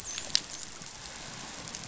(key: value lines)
label: biophony, dolphin
recorder: SoundTrap 500